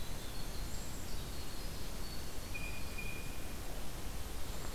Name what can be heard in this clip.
Winter Wren, Blue Jay